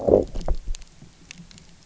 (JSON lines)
{"label": "biophony, low growl", "recorder": "SoundTrap 300"}